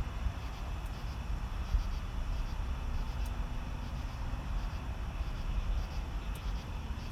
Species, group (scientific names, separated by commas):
Pterophylla camellifolia, Orthoptera